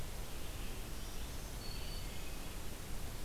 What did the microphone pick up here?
Red-eyed Vireo, Black-throated Green Warbler